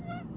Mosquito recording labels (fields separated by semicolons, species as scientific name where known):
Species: Aedes albopictus; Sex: male; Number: one; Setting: insect culture